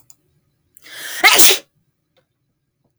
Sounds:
Sneeze